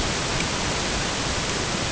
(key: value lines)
label: ambient
recorder: HydroMoth